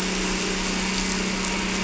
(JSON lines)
{"label": "anthrophony, boat engine", "recorder": "SoundTrap 300"}